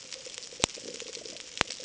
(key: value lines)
label: ambient
recorder: HydroMoth